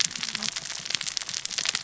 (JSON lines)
{"label": "biophony, cascading saw", "recorder": "SoundTrap 600 or HydroMoth"}